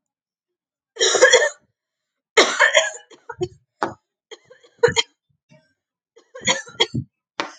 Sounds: Cough